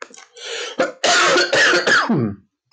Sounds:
Cough